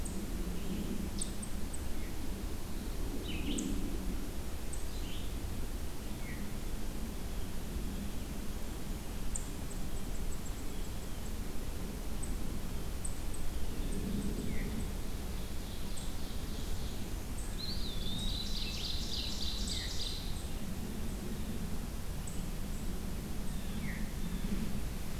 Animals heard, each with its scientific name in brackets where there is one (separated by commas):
Veery (Catharus fuscescens), Blue-headed Vireo (Vireo solitarius), unidentified call, Ovenbird (Seiurus aurocapilla), Eastern Wood-Pewee (Contopus virens), Blue Jay (Cyanocitta cristata)